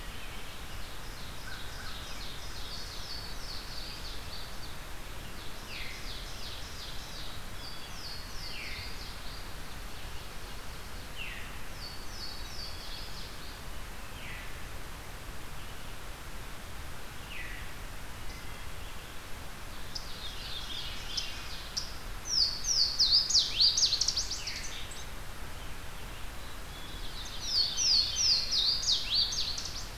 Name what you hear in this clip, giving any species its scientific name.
Seiurus aurocapilla, Corvus brachyrhynchos, Parkesia motacilla, Catharus fuscescens, Poecile atricapillus, Hylocichla mustelina